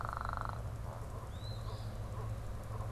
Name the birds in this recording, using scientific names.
Sayornis phoebe